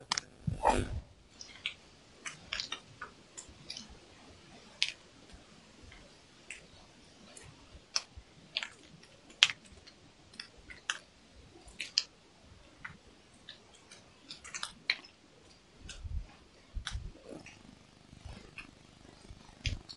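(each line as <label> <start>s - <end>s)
Flicking and sucking sounds occur irregularly at medium loudness. 0.0s - 20.0s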